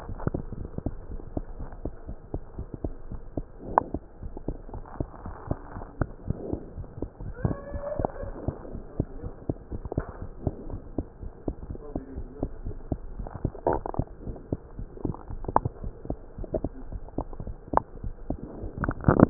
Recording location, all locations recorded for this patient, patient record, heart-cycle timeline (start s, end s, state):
mitral valve (MV)
aortic valve (AV)+pulmonary valve (PV)+tricuspid valve (TV)+mitral valve (MV)
#Age: Child
#Sex: Male
#Height: 81.0 cm
#Weight: 10.725 kg
#Pregnancy status: False
#Murmur: Absent
#Murmur locations: nan
#Most audible location: nan
#Systolic murmur timing: nan
#Systolic murmur shape: nan
#Systolic murmur grading: nan
#Systolic murmur pitch: nan
#Systolic murmur quality: nan
#Diastolic murmur timing: nan
#Diastolic murmur shape: nan
#Diastolic murmur grading: nan
#Diastolic murmur pitch: nan
#Diastolic murmur quality: nan
#Outcome: Abnormal
#Campaign: 2015 screening campaign
0.00	0.94	unannotated
0.94	1.12	diastole
1.12	1.24	S1
1.24	1.34	systole
1.34	1.44	S2
1.44	1.58	diastole
1.58	1.68	S1
1.68	1.82	systole
1.82	1.94	S2
1.94	2.08	diastole
2.08	2.16	S1
2.16	2.30	systole
2.30	2.42	S2
2.42	2.58	diastole
2.58	2.68	S1
2.68	2.80	systole
2.80	2.94	S2
2.94	3.10	diastole
3.10	3.22	S1
3.22	3.36	systole
3.36	3.46	S2
3.46	3.66	diastole
3.66	3.82	S1
3.82	3.92	systole
3.92	4.02	S2
4.02	4.22	diastole
4.22	4.34	S1
4.34	4.46	systole
4.46	4.60	S2
4.60	4.74	diastole
4.74	4.84	S1
4.84	4.96	systole
4.96	5.08	S2
5.08	5.24	diastole
5.24	5.36	S1
5.36	5.46	systole
5.46	5.60	S2
5.60	5.76	diastole
5.76	5.88	S1
5.88	6.00	systole
6.00	6.12	S2
6.12	6.26	diastole
6.26	6.40	S1
6.40	6.50	systole
6.50	6.62	S2
6.62	6.76	diastole
6.76	6.88	S1
6.88	6.98	systole
6.98	7.08	S2
7.08	7.22	diastole
7.22	7.34	S1
7.34	7.46	systole
7.46	7.60	S2
7.60	7.74	diastole
7.74	7.84	S1
7.84	7.96	systole
7.96	8.08	S2
8.08	8.20	diastole
8.20	8.34	S1
8.34	8.42	systole
8.42	8.56	S2
8.56	8.72	diastole
8.72	8.82	S1
8.82	8.96	systole
8.96	9.08	S2
9.08	9.24	diastole
9.24	9.34	S1
9.34	9.50	systole
9.50	9.58	S2
9.58	9.72	diastole
9.72	9.86	S1
9.86	9.96	systole
9.96	10.06	S2
10.06	10.20	diastole
10.20	10.30	S1
10.30	10.44	systole
10.44	10.54	S2
10.54	10.68	diastole
10.68	10.80	S1
10.80	10.94	systole
10.94	11.08	S2
11.08	11.22	diastole
11.22	11.32	S1
11.32	11.46	systole
11.46	11.56	S2
11.56	11.68	diastole
11.68	11.78	S1
11.78	11.94	systole
11.94	12.02	S2
12.02	12.16	diastole
12.16	12.28	S1
12.28	12.38	systole
12.38	12.50	S2
12.50	12.64	diastole
12.64	12.78	S1
12.78	12.90	systole
12.90	13.02	S2
13.02	13.16	diastole
13.16	13.30	S1
13.30	13.40	systole
13.40	13.54	S2
13.54	13.68	diastole
13.68	19.30	unannotated